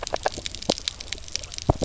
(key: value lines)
label: biophony, grazing
recorder: SoundTrap 300